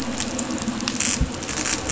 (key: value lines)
label: anthrophony, boat engine
recorder: SoundTrap 500